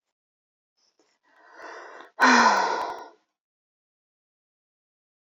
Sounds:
Sigh